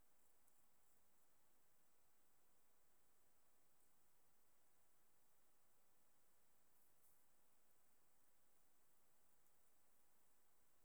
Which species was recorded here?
Tettigonia viridissima